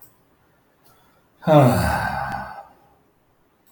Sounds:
Sigh